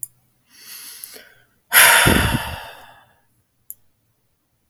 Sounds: Sigh